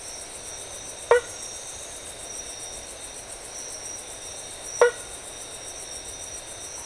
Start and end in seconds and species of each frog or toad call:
1.0	1.5	blacksmith tree frog
4.7	5.0	blacksmith tree frog
Atlantic Forest, Brazil, 4:00am

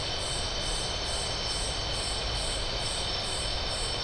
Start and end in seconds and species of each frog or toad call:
none
Atlantic Forest, Brazil, 11:15pm

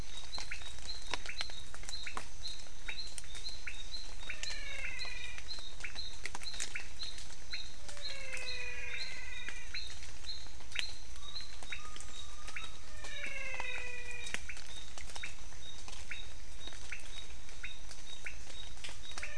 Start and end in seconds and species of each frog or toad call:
0.0	19.3	pointedbelly frog
4.0	5.7	menwig frog
7.8	10.0	menwig frog
12.8	14.7	menwig frog
Cerrado, Brazil, 6:00pm

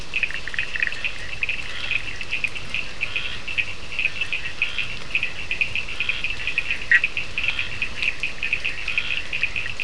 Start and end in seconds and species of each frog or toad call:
0.0	9.8	Scinax perereca
0.0	9.8	Cochran's lime tree frog
0.0	2.6	Bischoff's tree frog
6.7	7.2	Bischoff's tree frog
Atlantic Forest, Brazil, 11:15pm

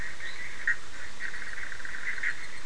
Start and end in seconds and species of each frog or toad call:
0.0	2.6	Bischoff's tree frog
0.1	0.6	fine-lined tree frog
Atlantic Forest, Brazil, 9:30pm

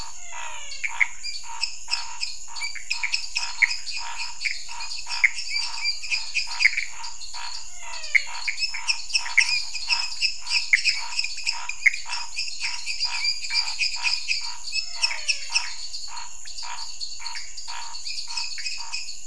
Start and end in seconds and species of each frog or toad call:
0.0	19.2	lesser tree frog
0.0	19.2	dwarf tree frog
0.0	19.2	pointedbelly frog
0.0	19.2	Pithecopus azureus
0.0	19.2	Scinax fuscovarius
0.0	1.1	menwig frog
7.6	8.8	menwig frog
14.5	15.9	menwig frog
Cerrado, Brazil, 8:30pm

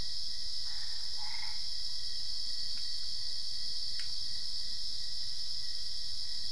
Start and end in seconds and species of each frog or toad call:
0.5	1.7	Boana albopunctata
Cerrado, Brazil, 11:15pm

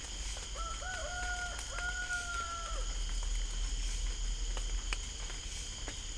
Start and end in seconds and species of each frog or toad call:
none
Cerrado, Brazil, 6:00pm

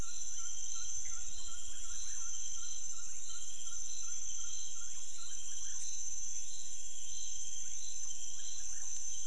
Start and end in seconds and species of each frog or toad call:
0.3	0.5	rufous frog
1.5	2.6	rufous frog
3.1	3.4	rufous frog
4.9	5.2	rufous frog
7.6	7.8	rufous frog
Cerrado, Brazil, 2:00am

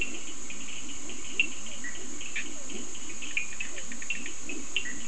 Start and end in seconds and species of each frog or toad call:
0.0	5.0	Leptodactylus latrans
0.0	5.0	Cochran's lime tree frog
1.5	5.0	Physalaemus cuvieri
1.8	2.6	Bischoff's tree frog
3.1	4.5	Bischoff's tree frog
Atlantic Forest, Brazil, 4:15am

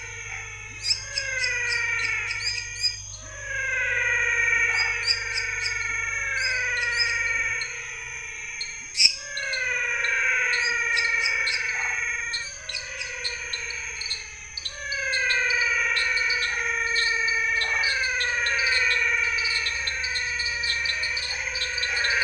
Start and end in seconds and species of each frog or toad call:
0.0	0.6	waxy monkey tree frog
0.0	9.3	lesser tree frog
0.0	11.3	pepper frog
0.0	22.2	menwig frog
4.6	5.0	waxy monkey tree frog
8.7	22.2	dwarf tree frog
11.7	12.1	waxy monkey tree frog
17.6	18.0	waxy monkey tree frog
Cerrado, Brazil, 7:30pm

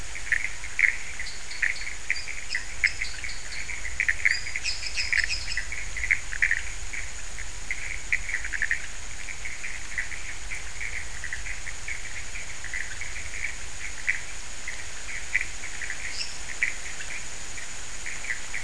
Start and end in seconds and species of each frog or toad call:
0.0	18.6	pointedbelly frog
0.0	18.6	Pithecopus azureus
1.2	2.0	dwarf tree frog
3.0	3.7	dwarf tree frog
4.6	5.7	lesser tree frog
15.8	16.6	lesser tree frog
Cerrado, Brazil, 4:15am

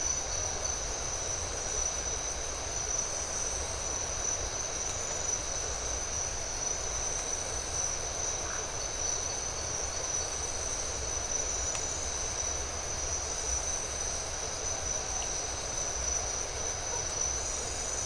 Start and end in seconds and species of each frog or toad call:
8.4	8.7	Phyllomedusa distincta
Atlantic Forest, Brazil, 4:15am

